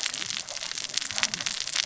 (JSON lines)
{"label": "biophony, cascading saw", "recorder": "SoundTrap 600 or HydroMoth"}